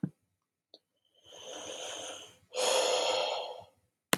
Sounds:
Sigh